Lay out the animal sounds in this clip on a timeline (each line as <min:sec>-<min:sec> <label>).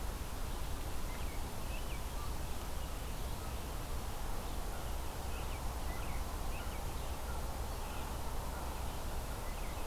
0:00.0-0:09.9 Red-eyed Vireo (Vireo olivaceus)
0:01.0-0:02.1 American Robin (Turdus migratorius)
0:05.2-0:06.8 American Robin (Turdus migratorius)
0:09.2-0:09.9 American Robin (Turdus migratorius)